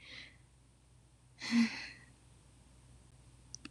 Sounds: Sigh